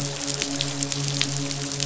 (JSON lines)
{"label": "biophony, midshipman", "recorder": "SoundTrap 500"}